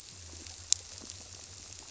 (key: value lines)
label: biophony
recorder: SoundTrap 300